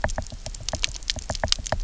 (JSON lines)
{"label": "biophony, knock", "recorder": "SoundTrap 300"}